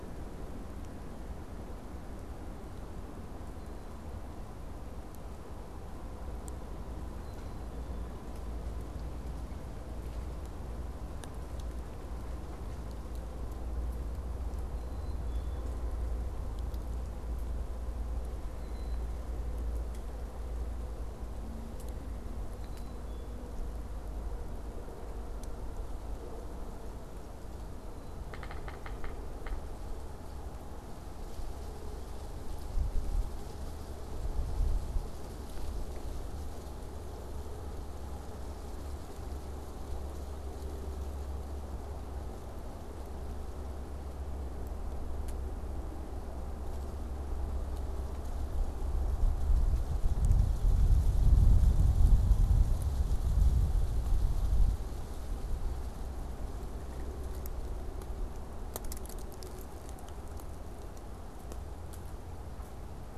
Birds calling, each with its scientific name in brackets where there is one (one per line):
Black-capped Chickadee (Poecile atricapillus)
Yellow-bellied Sapsucker (Sphyrapicus varius)